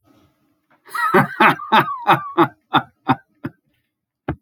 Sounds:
Laughter